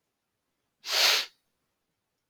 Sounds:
Sniff